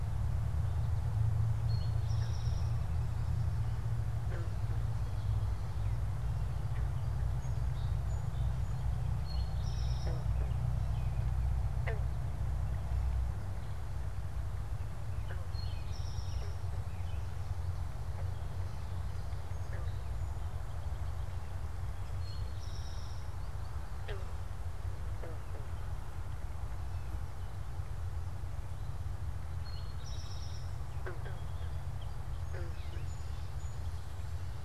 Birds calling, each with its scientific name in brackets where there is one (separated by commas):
Gray Catbird (Dumetella carolinensis), Song Sparrow (Melospiza melodia), Eastern Towhee (Pipilo erythrophthalmus), American Robin (Turdus migratorius)